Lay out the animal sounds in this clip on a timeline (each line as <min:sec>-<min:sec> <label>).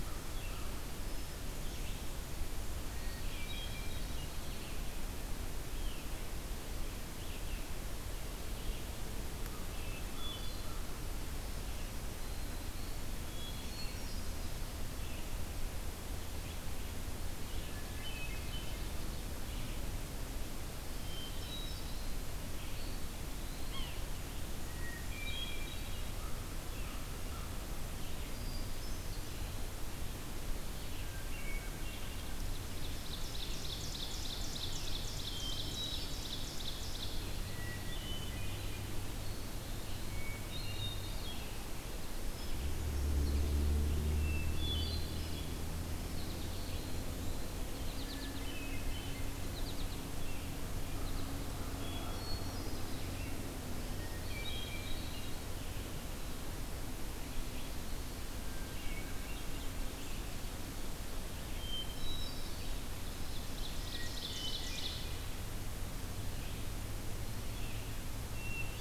0:00.0-0:00.8 American Crow (Corvus brachyrhynchos)
0:00.0-0:36.2 Red-eyed Vireo (Vireo olivaceus)
0:01.0-0:02.2 Hermit Thrush (Catharus guttatus)
0:02.8-0:04.2 Hermit Thrush (Catharus guttatus)
0:03.3-0:04.8 Eastern Wood-Pewee (Contopus virens)
0:09.4-0:10.9 American Crow (Corvus brachyrhynchos)
0:09.6-0:10.8 Hermit Thrush (Catharus guttatus)
0:12.6-0:14.1 Eastern Wood-Pewee (Contopus virens)
0:13.3-0:14.7 Hermit Thrush (Catharus guttatus)
0:17.5-0:18.9 Hermit Thrush (Catharus guttatus)
0:20.8-0:22.1 Hermit Thrush (Catharus guttatus)
0:22.6-0:23.9 Eastern Wood-Pewee (Contopus virens)
0:23.5-0:24.1 Yellow-bellied Sapsucker (Sphyrapicus varius)
0:24.6-0:26.4 Hermit Thrush (Catharus guttatus)
0:26.2-0:27.8 American Crow (Corvus brachyrhynchos)
0:28.2-0:29.6 Hermit Thrush (Catharus guttatus)
0:30.9-0:32.2 Hermit Thrush (Catharus guttatus)
0:32.1-0:37.3 Ovenbird (Seiurus aurocapilla)
0:35.3-0:36.5 Hermit Thrush (Catharus guttatus)
0:37.4-0:39.0 Hermit Thrush (Catharus guttatus)
0:38.5-1:08.8 Red-eyed Vireo (Vireo olivaceus)
0:40.0-0:41.5 Hermit Thrush (Catharus guttatus)
0:42.1-0:43.4 Hermit Thrush (Catharus guttatus)
0:44.1-0:45.7 Hermit Thrush (Catharus guttatus)
0:46.1-0:46.9 American Goldfinch (Spinus tristis)
0:46.5-0:47.6 Eastern Wood-Pewee (Contopus virens)
0:47.8-0:48.5 American Goldfinch (Spinus tristis)
0:47.8-0:49.2 Hermit Thrush (Catharus guttatus)
0:49.4-0:50.2 American Goldfinch (Spinus tristis)
0:51.0-0:51.5 American Goldfinch (Spinus tristis)
0:51.8-0:53.3 Hermit Thrush (Catharus guttatus)
0:54.0-0:55.7 Hermit Thrush (Catharus guttatus)
0:58.4-0:59.6 Hermit Thrush (Catharus guttatus)
1:01.4-1:02.9 Hermit Thrush (Catharus guttatus)
1:02.9-1:05.3 Ovenbird (Seiurus aurocapilla)
1:03.7-1:05.3 Hermit Thrush (Catharus guttatus)
1:08.1-1:08.8 Hermit Thrush (Catharus guttatus)